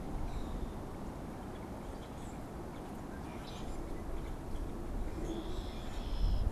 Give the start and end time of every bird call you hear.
[0.06, 0.76] unidentified bird
[3.06, 6.52] Common Grackle (Quiscalus quiscula)
[4.86, 6.52] Red-winged Blackbird (Agelaius phoeniceus)

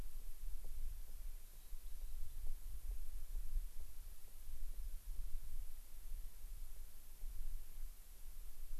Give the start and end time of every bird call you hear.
[1.28, 2.48] Rock Wren (Salpinctes obsoletus)

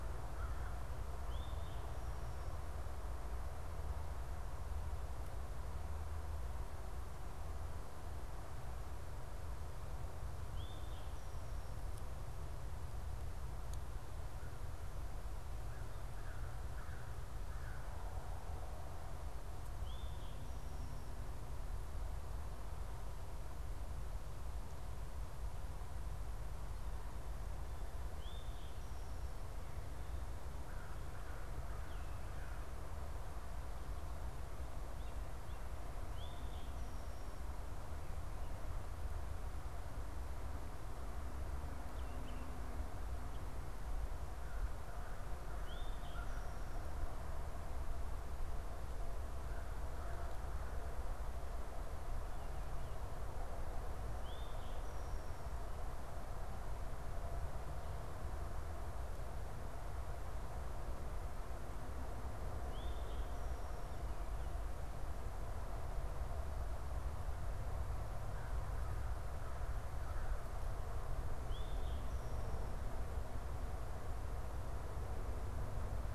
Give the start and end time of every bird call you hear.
[1.24, 1.94] Eastern Towhee (Pipilo erythrophthalmus)
[10.54, 10.84] Eastern Towhee (Pipilo erythrophthalmus)
[15.54, 17.94] American Crow (Corvus brachyrhynchos)
[19.74, 20.34] Eastern Towhee (Pipilo erythrophthalmus)
[28.14, 28.74] Eastern Towhee (Pipilo erythrophthalmus)
[30.54, 32.84] American Crow (Corvus brachyrhynchos)
[36.14, 36.84] Eastern Towhee (Pipilo erythrophthalmus)
[44.34, 50.94] American Crow (Corvus brachyrhynchos)
[45.54, 46.34] Eastern Towhee (Pipilo erythrophthalmus)
[54.14, 54.64] Eastern Towhee (Pipilo erythrophthalmus)
[62.54, 63.24] Eastern Towhee (Pipilo erythrophthalmus)
[71.44, 72.14] Eastern Towhee (Pipilo erythrophthalmus)

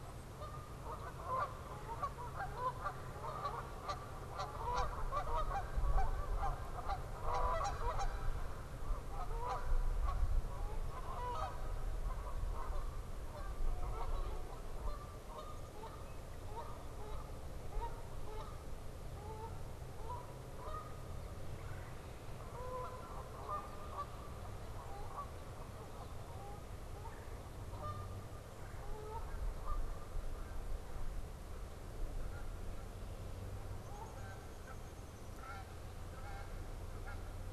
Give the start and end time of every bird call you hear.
[0.00, 37.53] Canada Goose (Branta canadensis)
[1.50, 3.30] Red-bellied Woodpecker (Melanerpes carolinus)
[21.30, 22.10] Red-bellied Woodpecker (Melanerpes carolinus)
[27.00, 27.50] Red-bellied Woodpecker (Melanerpes carolinus)
[33.60, 35.40] Downy Woodpecker (Dryobates pubescens)

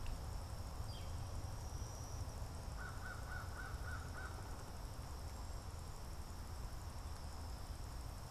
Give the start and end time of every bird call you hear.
[0.60, 1.21] Northern Flicker (Colaptes auratus)
[2.50, 4.71] American Crow (Corvus brachyrhynchos)

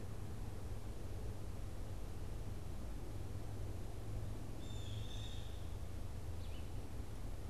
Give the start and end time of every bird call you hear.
[4.29, 7.49] Blue Jay (Cyanocitta cristata)
[6.09, 7.49] Red-eyed Vireo (Vireo olivaceus)

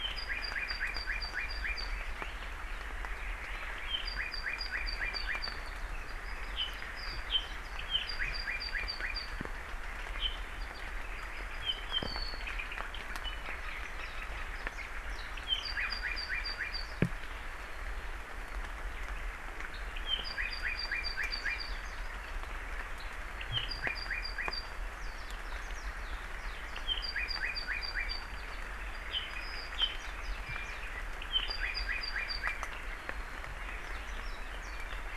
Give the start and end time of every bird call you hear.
[0.00, 1.90] Apapane (Himatione sanguinea)
[1.90, 2.30] Hawaii Elepaio (Chasiempis sandwichensis)
[3.90, 5.60] Apapane (Himatione sanguinea)
[6.60, 9.30] Apapane (Himatione sanguinea)
[10.10, 14.40] Apapane (Himatione sanguinea)
[14.80, 14.90] Apapane (Himatione sanguinea)
[15.40, 16.90] Apapane (Himatione sanguinea)
[20.00, 21.80] Apapane (Himatione sanguinea)
[23.40, 24.70] Apapane (Himatione sanguinea)
[25.00, 26.80] Warbling White-eye (Zosterops japonicus)
[26.70, 33.70] Apapane (Himatione sanguinea)
[29.80, 30.80] Warbling White-eye (Zosterops japonicus)
[33.80, 35.10] Warbling White-eye (Zosterops japonicus)

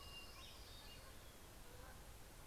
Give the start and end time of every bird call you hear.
[0.00, 1.65] Orange-crowned Warbler (Leiothlypis celata)
[0.00, 2.47] Canada Goose (Branta canadensis)
[0.00, 2.47] Hermit Thrush (Catharus guttatus)

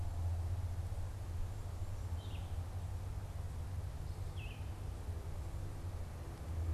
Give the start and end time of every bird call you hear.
[0.00, 6.74] Red-eyed Vireo (Vireo olivaceus)

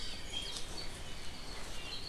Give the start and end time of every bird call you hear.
[1.78, 1.98] Apapane (Himatione sanguinea)

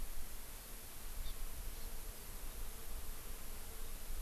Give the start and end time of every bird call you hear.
[1.22, 1.32] Hawaii Amakihi (Chlorodrepanis virens)
[1.82, 1.92] Hawaii Amakihi (Chlorodrepanis virens)

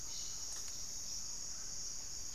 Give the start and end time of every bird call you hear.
[0.00, 2.34] Cobalt-winged Parakeet (Brotogeris cyanoptera)
[0.00, 2.34] Hauxwell's Thrush (Turdus hauxwelli)

